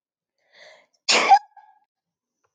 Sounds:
Sneeze